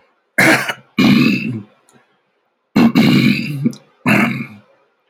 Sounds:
Throat clearing